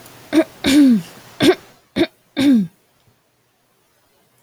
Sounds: Throat clearing